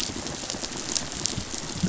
{"label": "biophony, rattle response", "recorder": "SoundTrap 500"}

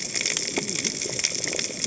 {"label": "biophony, cascading saw", "recorder": "HydroMoth"}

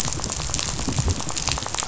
{"label": "biophony, rattle", "recorder": "SoundTrap 500"}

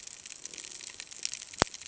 {"label": "ambient", "recorder": "HydroMoth"}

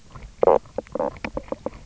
{"label": "biophony, knock croak", "recorder": "SoundTrap 300"}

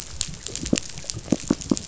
{"label": "biophony, knock", "recorder": "SoundTrap 500"}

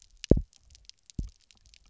{"label": "biophony, double pulse", "recorder": "SoundTrap 300"}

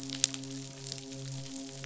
{"label": "biophony, midshipman", "recorder": "SoundTrap 500"}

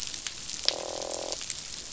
{"label": "biophony, croak", "recorder": "SoundTrap 500"}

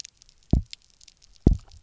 {"label": "biophony, double pulse", "recorder": "SoundTrap 300"}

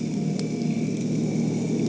{"label": "anthrophony, boat engine", "recorder": "HydroMoth"}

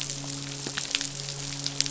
{"label": "biophony, midshipman", "recorder": "SoundTrap 500"}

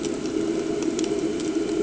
{"label": "anthrophony, boat engine", "recorder": "HydroMoth"}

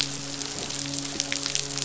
{"label": "biophony, midshipman", "recorder": "SoundTrap 500"}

